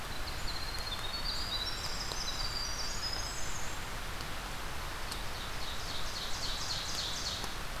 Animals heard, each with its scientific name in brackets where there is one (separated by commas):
Ovenbird (Seiurus aurocapilla), Winter Wren (Troglodytes hiemalis)